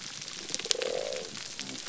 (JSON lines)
{"label": "biophony", "recorder": "SoundTrap 300"}